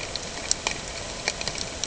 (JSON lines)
{"label": "ambient", "recorder": "HydroMoth"}